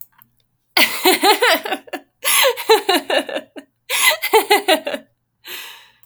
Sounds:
Laughter